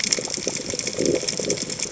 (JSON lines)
{"label": "biophony", "recorder": "HydroMoth"}